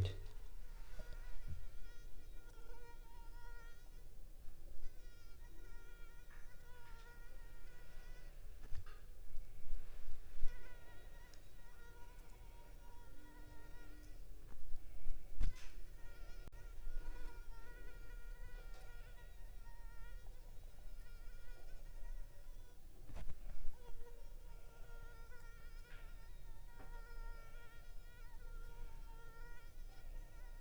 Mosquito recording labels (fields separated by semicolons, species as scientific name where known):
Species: Anopheles arabiensis; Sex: female; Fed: unfed; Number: one; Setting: cup